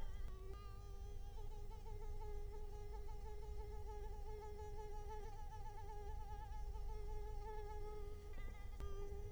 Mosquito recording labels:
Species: Culex quinquefasciatus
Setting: cup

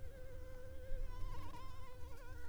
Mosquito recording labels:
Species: Anopheles arabiensis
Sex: female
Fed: unfed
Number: one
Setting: cup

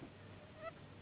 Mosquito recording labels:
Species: Anopheles gambiae s.s.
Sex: female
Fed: unfed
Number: one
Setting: insect culture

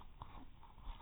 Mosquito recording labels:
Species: no mosquito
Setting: cup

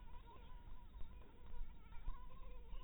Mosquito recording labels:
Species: Anopheles harrisoni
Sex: female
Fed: blood-fed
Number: one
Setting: cup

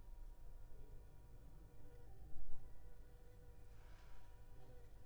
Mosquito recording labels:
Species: Culex pipiens complex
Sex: female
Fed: unfed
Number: one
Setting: cup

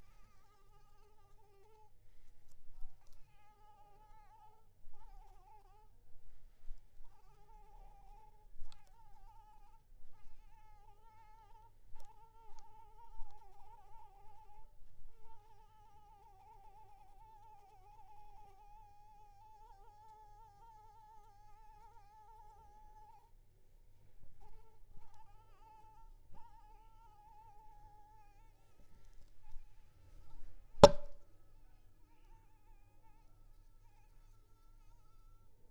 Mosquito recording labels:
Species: Anopheles maculipalpis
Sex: female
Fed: unfed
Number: one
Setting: cup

